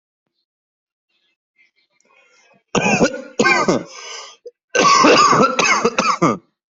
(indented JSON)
{
  "expert_labels": [
    {
      "quality": "ok",
      "cough_type": "dry",
      "dyspnea": false,
      "wheezing": false,
      "stridor": false,
      "choking": false,
      "congestion": false,
      "nothing": true,
      "diagnosis": "COVID-19",
      "severity": "mild"
    }
  ],
  "age": 23,
  "gender": "male",
  "respiratory_condition": false,
  "fever_muscle_pain": false,
  "status": "healthy"
}